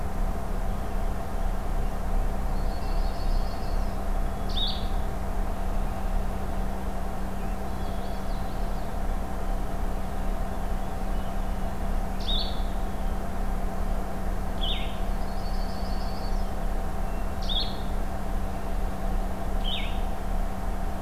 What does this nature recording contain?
Yellow-rumped Warbler, Blue-headed Vireo, Common Yellowthroat, Hermit Thrush